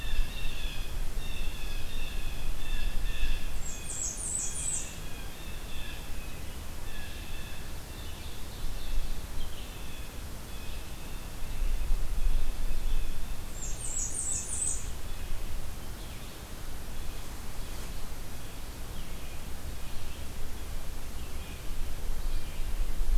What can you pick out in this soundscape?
Blue Jay, Red-eyed Vireo, Blackburnian Warbler, Ovenbird